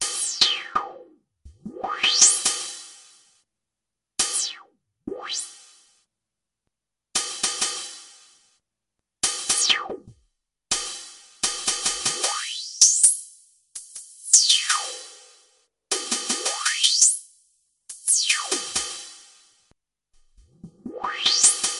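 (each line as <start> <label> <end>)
0.0 An artificial sound is crisp and fades quickly. 3.3
0.0 Mechanical hi-hat sounds with a metallic, irregular rhythm. 3.3
4.2 An artificial sound crisp and fading quickly. 5.8
4.2 Mechanical hi-hat sounds metallic and staccato. 5.8
7.1 Mechanical hi-hat sounds with a metallic, irregular rhythm. 8.2
9.2 An artificial sound is crisp and quickly fades irregularly after some abrupt crescendos. 19.4
9.2 Mechanical hi-hat sounds metallic and rhythmic in an irregular pattern. 19.4
20.6 An artificial sound is crisp with a crescendo. 21.8
20.6 Mechanical hi-hat produces increasing metallic staccato sounds. 21.8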